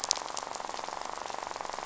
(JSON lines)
{"label": "biophony, rattle", "recorder": "SoundTrap 500"}